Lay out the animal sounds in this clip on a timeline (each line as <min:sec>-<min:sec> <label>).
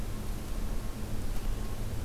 0:01.3-0:02.0 American Robin (Turdus migratorius)